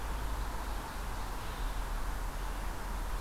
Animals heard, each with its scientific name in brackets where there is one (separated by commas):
Ovenbird (Seiurus aurocapilla), Red-eyed Vireo (Vireo olivaceus)